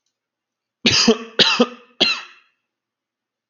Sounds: Cough